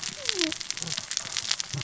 {"label": "biophony, cascading saw", "recorder": "SoundTrap 600 or HydroMoth"}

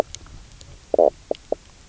{"label": "biophony, knock croak", "recorder": "SoundTrap 300"}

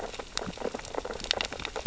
{"label": "biophony, sea urchins (Echinidae)", "recorder": "SoundTrap 600 or HydroMoth"}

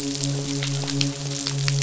{"label": "biophony, midshipman", "recorder": "SoundTrap 500"}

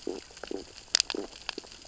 {"label": "biophony, stridulation", "recorder": "SoundTrap 600 or HydroMoth"}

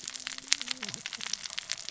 {"label": "biophony, cascading saw", "recorder": "SoundTrap 600 or HydroMoth"}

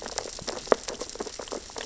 {"label": "biophony, sea urchins (Echinidae)", "recorder": "SoundTrap 600 or HydroMoth"}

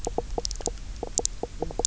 {"label": "biophony, knock croak", "recorder": "SoundTrap 300"}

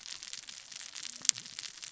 {"label": "biophony, cascading saw", "recorder": "SoundTrap 600 or HydroMoth"}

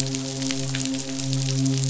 {"label": "biophony, midshipman", "recorder": "SoundTrap 500"}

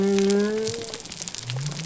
{"label": "biophony", "recorder": "SoundTrap 300"}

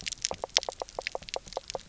{"label": "biophony, knock croak", "recorder": "SoundTrap 300"}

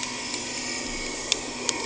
{"label": "anthrophony, boat engine", "recorder": "HydroMoth"}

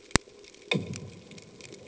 {"label": "anthrophony, bomb", "recorder": "HydroMoth"}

